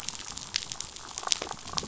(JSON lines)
{"label": "biophony, damselfish", "recorder": "SoundTrap 500"}